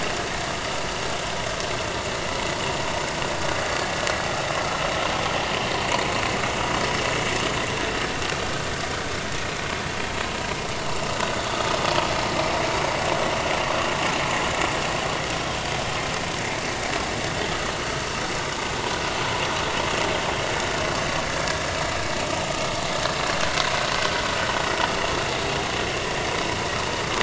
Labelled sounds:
21.3	21.6	vessel noise, 1.6 to 1.8 kHz

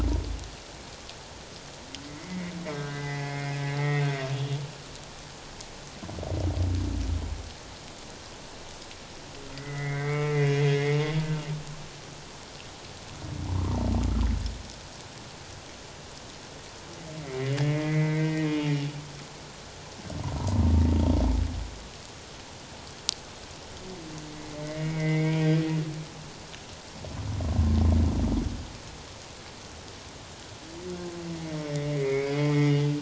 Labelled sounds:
2.0	4.0	humpback whale, 1.5 to 2.2 kHz
9.6	11.4	humpback whale, 0.91 to 2.9 kHz
17.2	18.5	humpback whale, 1.5 to 3.4 kHz
20.4	20.6	humpback whale, 0.88 to 1.1 kHz
24.4	25.5	humpback whale, 1.8 to 2.3 kHz
31.8	32.8	humpback whale, 0.84 to 2.4 kHz

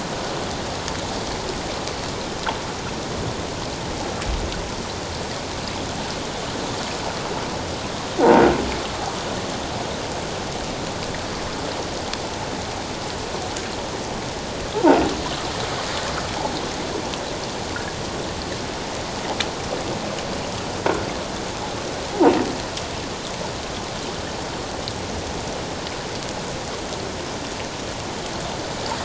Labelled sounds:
14.7	15.0	croaking sound likely from a nearby submerged object, 0.78 to 1.1 kHz

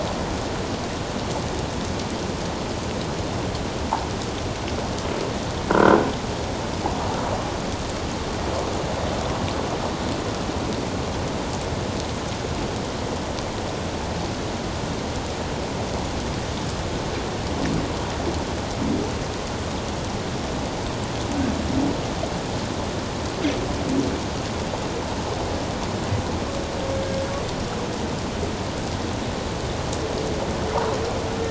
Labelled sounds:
5.7	6.1	croaking sound likely from a nearby submerged object, 1.3 to 1.6 kHz

